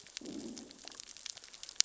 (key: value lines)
label: biophony, growl
recorder: SoundTrap 600 or HydroMoth